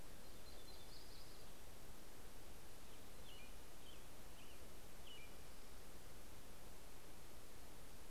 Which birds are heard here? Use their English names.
Yellow-rumped Warbler, American Robin